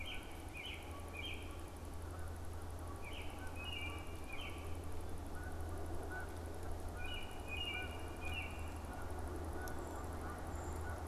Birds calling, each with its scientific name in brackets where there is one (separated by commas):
Canada Goose (Branta canadensis), Brown Creeper (Certhia americana), American Robin (Turdus migratorius)